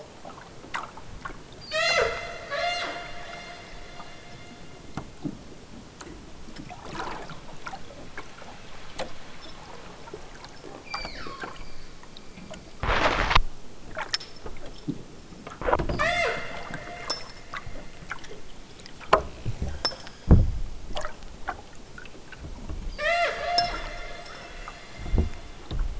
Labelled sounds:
1.5	3.1	killer whale, southern Alaska resident, 0.23 to 8.0 kHz
10.7	11.6	killer whale, southern Alaska resident, 0.73 to 5.1 kHz
15.9	16.5	killer whale, southern Alaska resident, 0.41 to 8.0 kHz
19.6	20.5	killer whale, southern Alaska resident, 1.2 to 7.1 kHz
22.9	23.9	killer whale, southern Alaska resident, 0.32 to 8.0 kHz

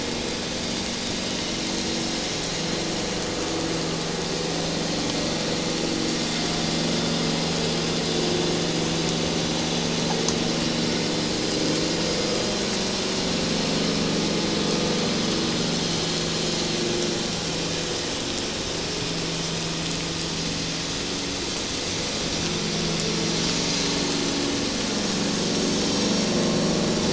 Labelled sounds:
23.0	23.3	vessel noise, 5.6 to 5.7 kHz

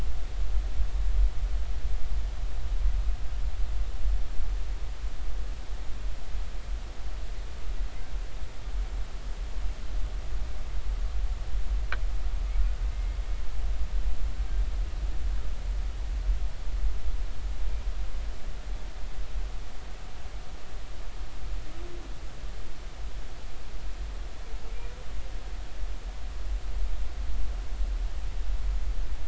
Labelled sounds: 12.9	13.2	humpback whale, 2.0 to 2.2 kHz

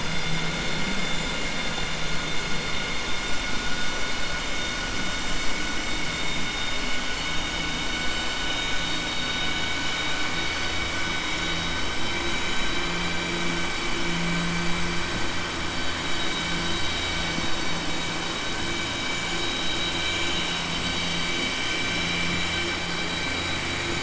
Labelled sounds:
12.6	13.2	vessel noise, 2.3 to 4.7 kHz

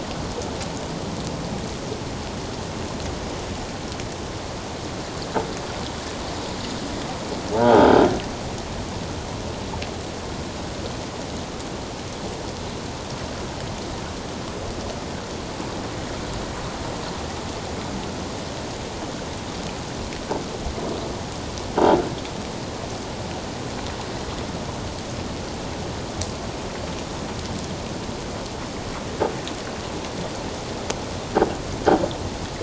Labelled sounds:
7.5	7.9	croaking sound likely from a nearby submerged object, 0.78 to 1.6 kHz

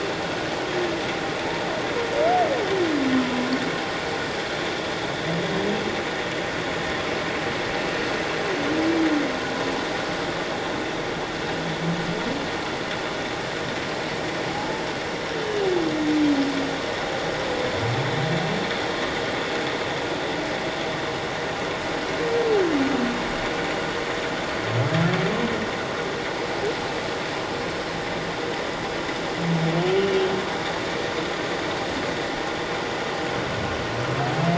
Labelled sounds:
14.5	15.6	humpback whale, 0.78 to 3.1 kHz
30.0	30.3	humpback whale, 2.8 to 3.0 kHz

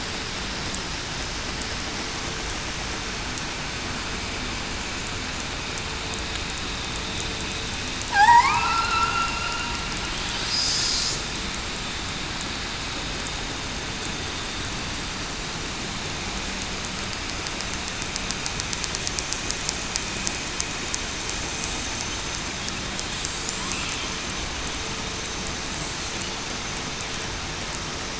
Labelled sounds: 8.3	8.7	killer whale, southern resident, 1.9 to 2.7 kHz
9.1	9.5	killer whale, southern resident, 2.7 to 2.8 kHz

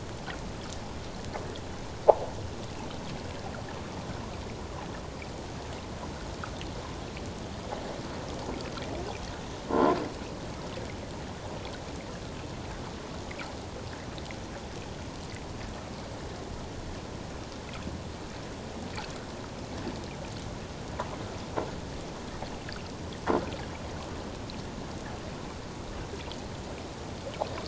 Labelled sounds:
9.7	10.0	croaking sound likely from a nearby submerged object, 0.94 to 1.1 kHz

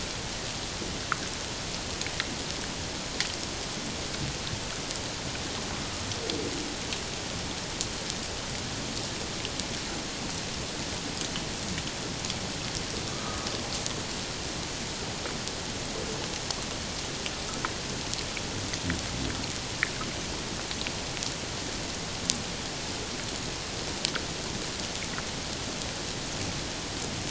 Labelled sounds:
13.1	13.5	humpback whale, 1.1 to 1.3 kHz

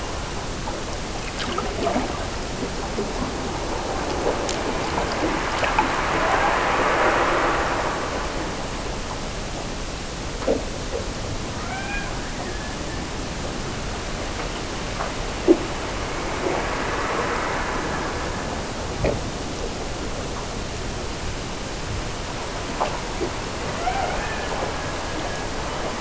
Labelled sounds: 11.6	13.2	killer whale, Bigg's (transient), Gulf of Alaska transient, 0.48 to 3.5 kHz
23.7	25.6	killer whale, Bigg's (transient), Gulf of Alaska transient, 0.48 to 2.6 kHz

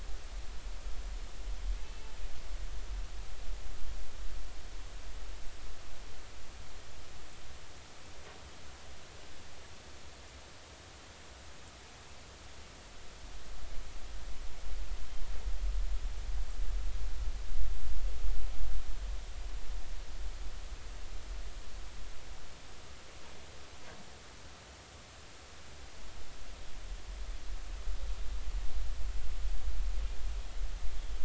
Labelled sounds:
1.8	2.1	killer whale, northern resident, A clan, call N03, 2.6 to 2.7 kHz

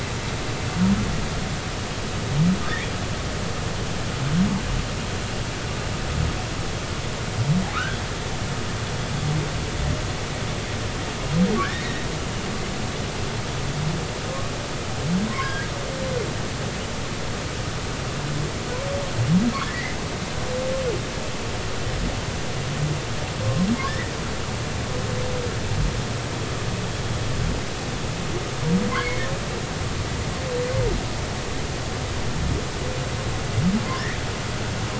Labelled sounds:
14.3	14.5	humpback whale, 1.0 to 1.2 kHz
15.2	15.7	humpback whale, 0.99 to 1.7 kHz
19.7	20.0	humpback whale, 1.8 to 2.1 kHz
23.8	24.1	humpback whale, 1.5 to 2.1 kHz
28.9	29.3	humpback whale, 2.0 to 2.3 kHz

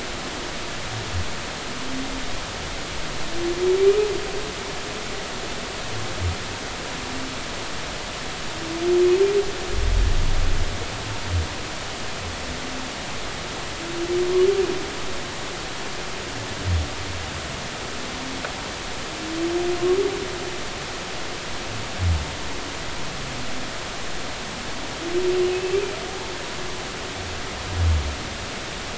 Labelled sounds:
25.5	25.8	humpback whale, 2.5 to 2.8 kHz

